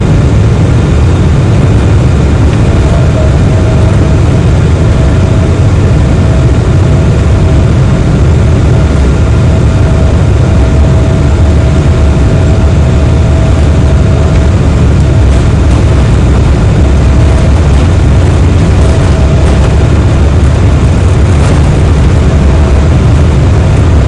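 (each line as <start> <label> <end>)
0.0 An aircraft is taking off loudly. 24.1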